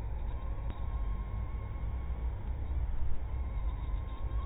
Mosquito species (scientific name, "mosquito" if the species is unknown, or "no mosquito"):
mosquito